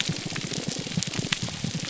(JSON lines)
{"label": "biophony, damselfish", "recorder": "SoundTrap 300"}